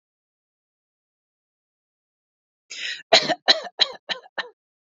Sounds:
Cough